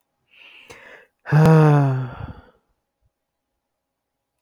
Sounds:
Sigh